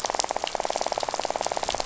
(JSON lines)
{"label": "biophony, rattle", "recorder": "SoundTrap 500"}